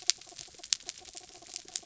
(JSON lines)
{"label": "anthrophony, mechanical", "recorder": "SoundTrap 300"}